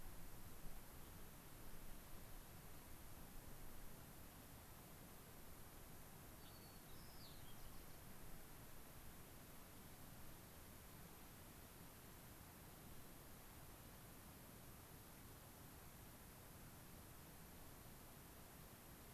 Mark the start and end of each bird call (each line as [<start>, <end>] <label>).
[6.28, 8.08] White-crowned Sparrow (Zonotrichia leucophrys)
[6.38, 6.58] Gray-crowned Rosy-Finch (Leucosticte tephrocotis)